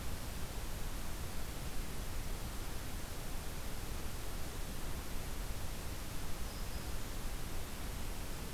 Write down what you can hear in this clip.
Black-throated Green Warbler